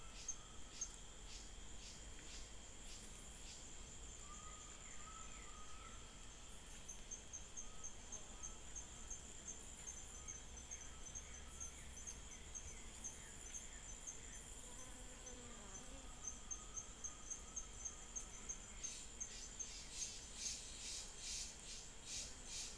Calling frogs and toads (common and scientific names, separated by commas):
Adenomera diptyx